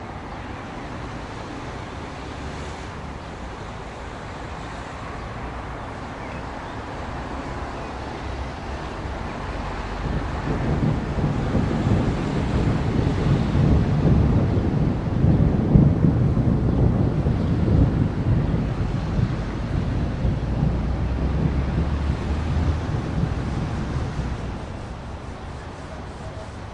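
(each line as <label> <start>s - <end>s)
Road noise. 0.0s - 10.2s
Thunder rumbles loudly. 10.4s - 23.3s
Road noise. 23.4s - 26.7s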